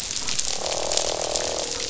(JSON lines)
{"label": "biophony, croak", "recorder": "SoundTrap 500"}